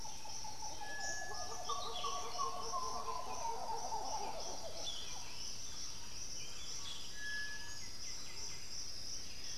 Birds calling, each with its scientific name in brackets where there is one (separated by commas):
Thrush-like Wren (Campylorhynchus turdinus), White-winged Becard (Pachyramphus polychopterus), Black-billed Thrush (Turdus ignobilis), Buff-throated Saltator (Saltator maximus)